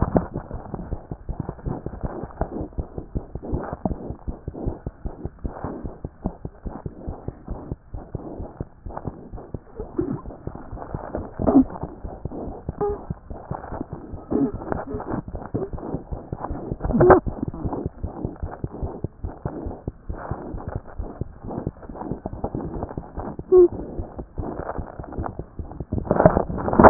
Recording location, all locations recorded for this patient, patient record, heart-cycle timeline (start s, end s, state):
mitral valve (MV)
pulmonary valve (PV)+mitral valve (MV)
#Age: Infant
#Sex: Male
#Height: 60.0 cm
#Weight: 12.2 kg
#Pregnancy status: False
#Murmur: Unknown
#Murmur locations: nan
#Most audible location: nan
#Systolic murmur timing: nan
#Systolic murmur shape: nan
#Systolic murmur grading: nan
#Systolic murmur pitch: nan
#Systolic murmur quality: nan
#Diastolic murmur timing: nan
#Diastolic murmur shape: nan
#Diastolic murmur grading: nan
#Diastolic murmur pitch: nan
#Diastolic murmur quality: nan
#Outcome: Abnormal
#Campaign: 2014 screening campaign
0.00	6.09	unannotated
6.09	6.24	diastole
6.24	6.33	S1
6.33	6.44	systole
6.44	6.52	S2
6.52	6.65	diastole
6.65	6.74	S1
6.74	6.86	systole
6.86	6.92	S2
6.92	7.08	diastole
7.08	7.16	S1
7.16	7.28	systole
7.28	7.36	S2
7.36	7.50	diastole
7.50	7.58	S1
7.58	7.71	systole
7.71	7.78	S2
7.78	7.94	diastole
7.94	8.03	S1
8.03	8.14	systole
8.14	8.22	S2
8.22	8.39	diastole
8.39	8.49	S1
8.49	8.60	systole
8.60	8.68	S2
8.68	8.87	diastole
8.87	26.90	unannotated